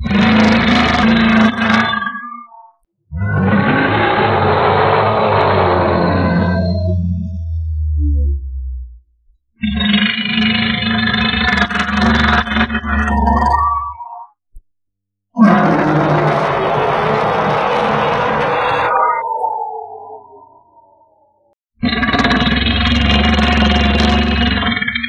How many animals are growling?
two